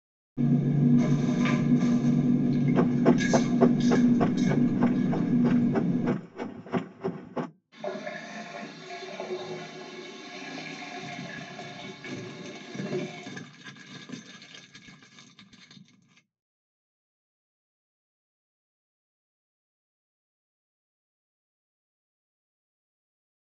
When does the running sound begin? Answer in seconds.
2.7 s